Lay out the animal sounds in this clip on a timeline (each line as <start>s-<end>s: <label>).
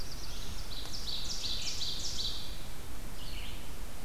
0.0s-0.8s: Black-throated Blue Warbler (Setophaga caerulescens)
0.3s-2.8s: Ovenbird (Seiurus aurocapilla)
3.0s-4.0s: Red-eyed Vireo (Vireo olivaceus)